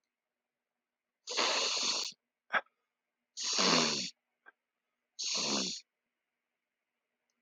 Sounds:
Sniff